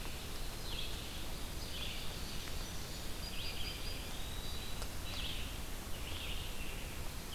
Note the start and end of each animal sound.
[0.00, 7.35] Red-eyed Vireo (Vireo olivaceus)
[3.15, 5.10] Eastern Wood-Pewee (Contopus virens)

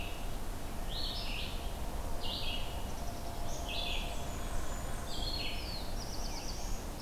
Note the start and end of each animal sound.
[0.00, 7.01] Red-eyed Vireo (Vireo olivaceus)
[3.89, 5.53] Blackburnian Warbler (Setophaga fusca)
[5.50, 6.97] Black-throated Blue Warbler (Setophaga caerulescens)

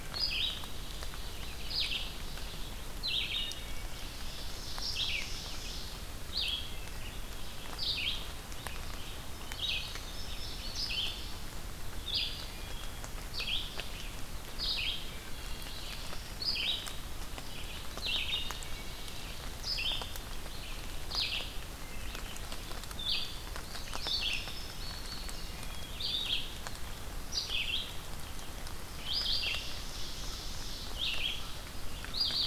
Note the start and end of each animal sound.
[0.00, 10.10] Red-eyed Vireo (Vireo olivaceus)
[0.01, 0.34] Wood Thrush (Hylocichla mustelina)
[0.64, 2.48] Ovenbird (Seiurus aurocapilla)
[3.07, 3.94] Wood Thrush (Hylocichla mustelina)
[3.78, 6.07] Ovenbird (Seiurus aurocapilla)
[6.57, 7.24] Wood Thrush (Hylocichla mustelina)
[9.39, 9.93] Wood Thrush (Hylocichla mustelina)
[9.52, 11.28] Indigo Bunting (Passerina cyanea)
[10.60, 32.46] Red-eyed Vireo (Vireo olivaceus)
[12.37, 12.99] Wood Thrush (Hylocichla mustelina)
[15.16, 15.87] Wood Thrush (Hylocichla mustelina)
[15.17, 16.52] Black-throated Blue Warbler (Setophaga caerulescens)
[18.53, 19.27] Wood Thrush (Hylocichla mustelina)
[21.62, 22.16] Wood Thrush (Hylocichla mustelina)
[23.75, 25.58] Indigo Bunting (Passerina cyanea)
[25.38, 25.96] Wood Thrush (Hylocichla mustelina)
[29.15, 31.76] Ovenbird (Seiurus aurocapilla)

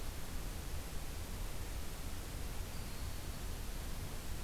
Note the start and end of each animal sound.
[2.69, 3.54] Broad-winged Hawk (Buteo platypterus)

